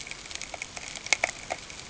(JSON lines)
{"label": "ambient", "recorder": "HydroMoth"}